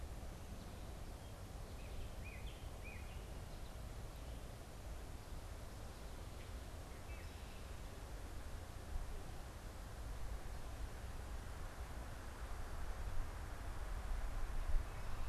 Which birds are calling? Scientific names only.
unidentified bird